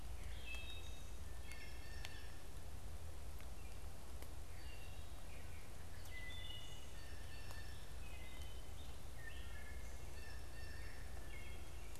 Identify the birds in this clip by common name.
Wood Thrush, Blue Jay